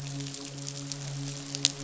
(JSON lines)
{"label": "biophony, midshipman", "recorder": "SoundTrap 500"}